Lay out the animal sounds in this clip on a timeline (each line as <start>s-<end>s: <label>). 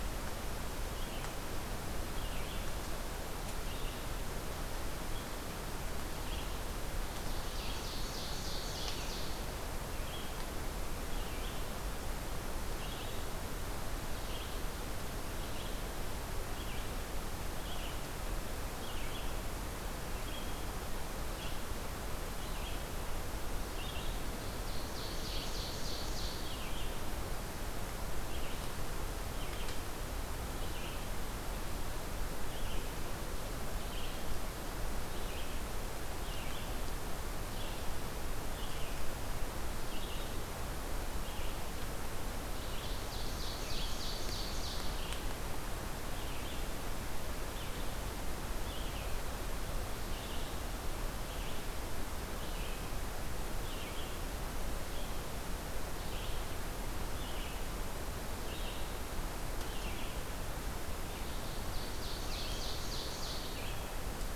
0.0s-29.8s: Red-eyed Vireo (Vireo olivaceus)
7.1s-9.2s: Ovenbird (Seiurus aurocapilla)
24.4s-26.4s: Ovenbird (Seiurus aurocapilla)
30.6s-64.4s: Red-eyed Vireo (Vireo olivaceus)
42.5s-44.9s: Ovenbird (Seiurus aurocapilla)
61.2s-63.5s: Ovenbird (Seiurus aurocapilla)